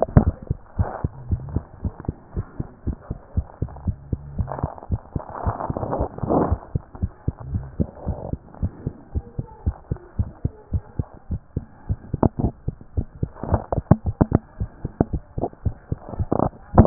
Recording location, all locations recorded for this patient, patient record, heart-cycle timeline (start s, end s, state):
tricuspid valve (TV)
aortic valve (AV)+pulmonary valve (PV)+tricuspid valve (TV)+mitral valve (MV)
#Age: Child
#Sex: Female
#Height: 123.0 cm
#Weight: 25.3 kg
#Pregnancy status: False
#Murmur: Absent
#Murmur locations: nan
#Most audible location: nan
#Systolic murmur timing: nan
#Systolic murmur shape: nan
#Systolic murmur grading: nan
#Systolic murmur pitch: nan
#Systolic murmur quality: nan
#Diastolic murmur timing: nan
#Diastolic murmur shape: nan
#Diastolic murmur grading: nan
#Diastolic murmur pitch: nan
#Diastolic murmur quality: nan
#Outcome: Normal
#Campaign: 2014 screening campaign
0.00	6.69	unannotated
6.69	6.74	systole
6.74	6.82	S2
6.82	7.02	diastole
7.02	7.12	S1
7.12	7.26	systole
7.26	7.34	S2
7.34	7.52	diastole
7.52	7.64	S1
7.64	7.78	systole
7.78	7.88	S2
7.88	8.06	diastole
8.06	8.18	S1
8.18	8.30	systole
8.30	8.40	S2
8.40	8.60	diastole
8.60	8.72	S1
8.72	8.84	systole
8.84	8.94	S2
8.94	9.14	diastole
9.14	9.24	S1
9.24	9.38	systole
9.38	9.46	S2
9.46	9.64	diastole
9.64	9.76	S1
9.76	9.90	systole
9.90	9.98	S2
9.98	10.18	diastole
10.18	10.30	S1
10.30	10.44	systole
10.44	10.52	S2
10.52	10.72	diastole
10.72	10.82	S1
10.82	10.98	systole
10.98	11.06	S2
11.06	11.30	diastole
11.30	11.40	S1
11.40	11.56	systole
11.56	11.66	S2
11.66	11.88	diastole
11.88	12.00	S1
12.00	12.05	systole
12.05	16.86	unannotated